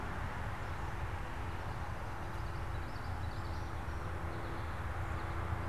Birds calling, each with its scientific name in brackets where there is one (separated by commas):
American Goldfinch (Spinus tristis), Common Yellowthroat (Geothlypis trichas)